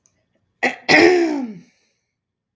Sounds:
Throat clearing